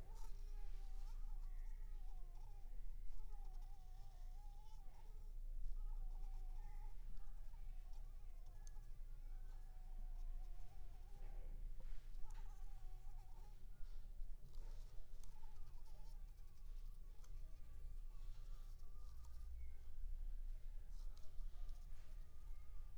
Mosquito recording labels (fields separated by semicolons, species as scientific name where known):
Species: Anopheles squamosus; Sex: female; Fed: unfed; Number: one; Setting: cup